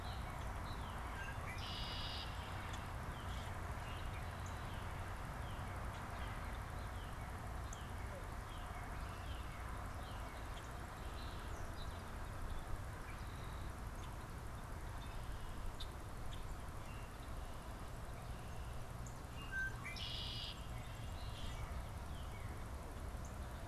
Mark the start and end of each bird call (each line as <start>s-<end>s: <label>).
0.0s-10.6s: Northern Cardinal (Cardinalis cardinalis)
0.9s-2.7s: Red-winged Blackbird (Agelaius phoeniceus)
3.2s-3.6s: Common Grackle (Quiscalus quiscula)
10.1s-12.7s: Song Sparrow (Melospiza melodia)
15.7s-16.0s: Red-winged Blackbird (Agelaius phoeniceus)
18.9s-19.3s: Northern Cardinal (Cardinalis cardinalis)
19.1s-20.9s: Red-winged Blackbird (Agelaius phoeniceus)
20.4s-22.9s: Northern Cardinal (Cardinalis cardinalis)
20.5s-22.1s: Song Sparrow (Melospiza melodia)
21.3s-21.8s: Common Grackle (Quiscalus quiscula)